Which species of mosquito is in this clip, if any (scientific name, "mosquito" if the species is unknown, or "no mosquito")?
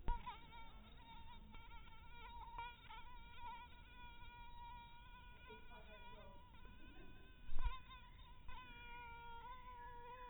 mosquito